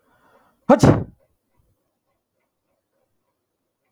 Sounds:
Sneeze